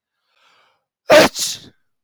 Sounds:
Sneeze